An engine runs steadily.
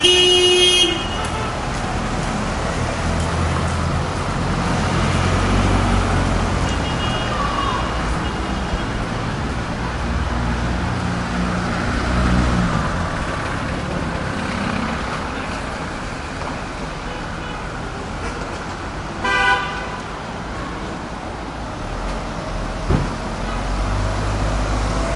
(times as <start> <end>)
12.8 16.0